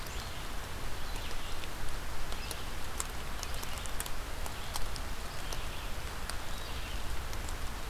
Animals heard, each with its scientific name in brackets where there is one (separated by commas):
Red-eyed Vireo (Vireo olivaceus)